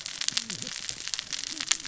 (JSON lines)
{"label": "biophony, cascading saw", "recorder": "SoundTrap 600 or HydroMoth"}